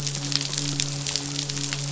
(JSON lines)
{"label": "biophony, midshipman", "recorder": "SoundTrap 500"}